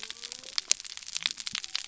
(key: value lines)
label: biophony
recorder: SoundTrap 300